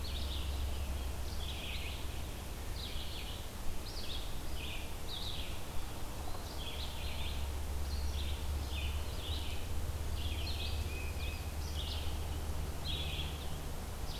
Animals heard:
Tufted Titmouse (Baeolophus bicolor), Red-eyed Vireo (Vireo olivaceus)

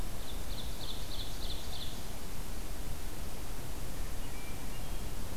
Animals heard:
Hermit Thrush (Catharus guttatus), Ovenbird (Seiurus aurocapilla)

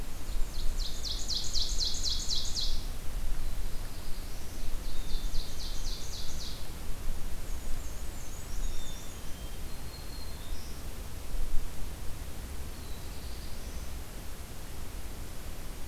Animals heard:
Black-and-white Warbler (Mniotilta varia), Black-throated Green Warbler (Setophaga virens), Ovenbird (Seiurus aurocapilla), Black-capped Chickadee (Poecile atricapillus), Black-throated Blue Warbler (Setophaga caerulescens)

